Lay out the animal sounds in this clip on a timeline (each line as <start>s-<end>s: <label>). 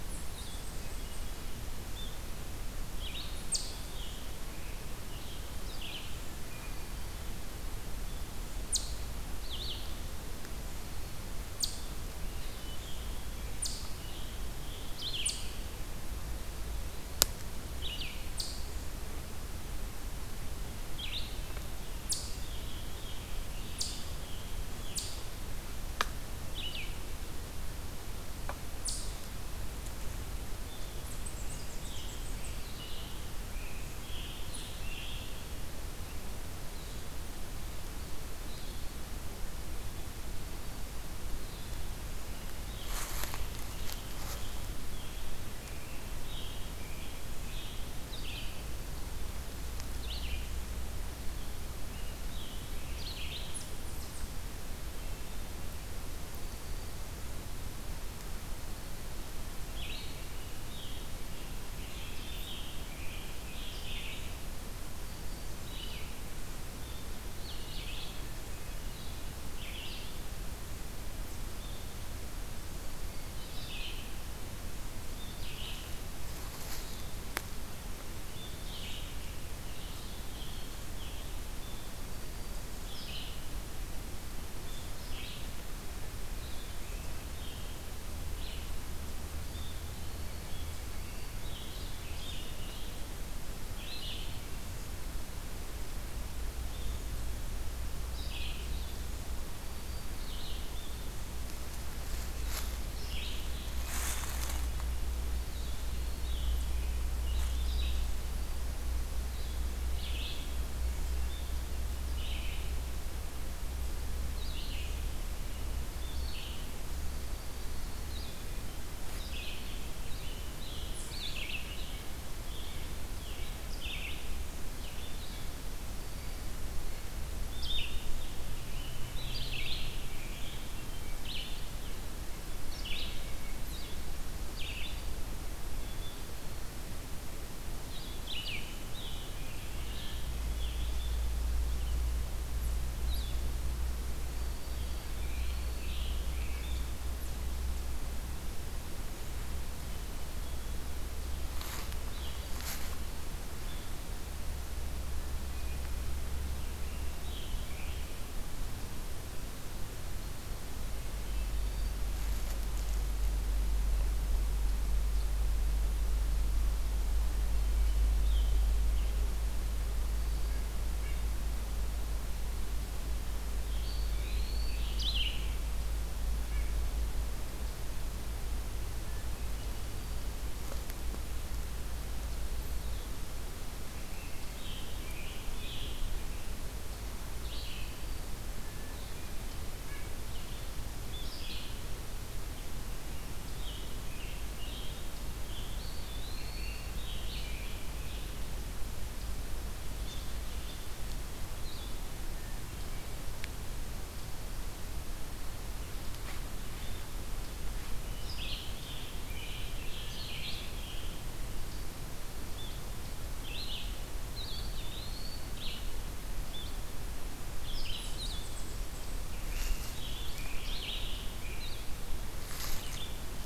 0.0s-29.6s: Eastern Chipmunk (Tamias striatus)
0.7s-1.7s: Hermit Thrush (Catharus guttatus)
4.0s-5.6s: Scarlet Tanager (Piranga olivacea)
5.9s-7.2s: Hermit Thrush (Catharus guttatus)
12.8s-15.6s: Scarlet Tanager (Piranga olivacea)
22.2s-24.8s: Scarlet Tanager (Piranga olivacea)
30.8s-32.1s: Eastern Chipmunk (Tamias striatus)
32.7s-35.6s: Scarlet Tanager (Piranga olivacea)
43.7s-47.9s: Scarlet Tanager (Piranga olivacea)
48.0s-88.8s: Red-eyed Vireo (Vireo olivaceus)
51.2s-53.7s: Scarlet Tanager (Piranga olivacea)
53.3s-54.5s: Eastern Chipmunk (Tamias striatus)
61.6s-64.7s: Scarlet Tanager (Piranga olivacea)
65.0s-66.0s: Black-throated Green Warbler (Setophaga virens)
79.5s-80.7s: Eastern Wood-Pewee (Contopus virens)
89.9s-90.8s: Black-throated Green Warbler (Setophaga virens)
91.0s-147.1s: Red-eyed Vireo (Vireo olivaceus)
118.0s-147.0s: Blue-headed Vireo (Vireo solitarius)
121.1s-123.6s: Red-breasted Nuthatch (Sitta canadensis)
144.2s-146.0s: Eastern Wood-Pewee (Contopus virens)
151.2s-152.6s: Scarlet Tanager (Piranga olivacea)
156.4s-158.4s: Scarlet Tanager (Piranga olivacea)
167.6s-169.2s: Scarlet Tanager (Piranga olivacea)
170.3s-171.4s: White-breasted Nuthatch (Sitta carolinensis)
173.4s-175.5s: Scarlet Tanager (Piranga olivacea)
173.7s-174.9s: Eastern Wood-Pewee (Contopus virens)
176.5s-176.7s: White-breasted Nuthatch (Sitta carolinensis)
183.8s-198.8s: Red-eyed Vireo (Vireo olivaceus)
183.9s-186.4s: Scarlet Tanager (Piranga olivacea)
188.6s-189.8s: Hermit Thrush (Catharus guttatus)
189.7s-190.1s: White-breasted Nuthatch (Sitta carolinensis)
195.7s-196.9s: Eastern Wood-Pewee (Contopus virens)
202.2s-203.3s: Hermit Thrush (Catharus guttatus)
207.8s-223.5s: Red-eyed Vireo (Vireo olivaceus)
208.4s-211.3s: Scarlet Tanager (Piranga olivacea)
214.3s-215.8s: Eastern Wood-Pewee (Contopus virens)
219.1s-221.6s: Scarlet Tanager (Piranga olivacea)